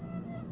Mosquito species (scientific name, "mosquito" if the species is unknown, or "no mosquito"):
Aedes albopictus